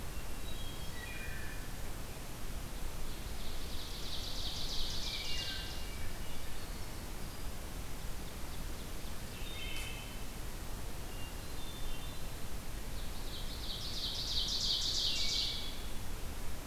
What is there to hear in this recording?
Hermit Thrush, Wood Thrush, Ovenbird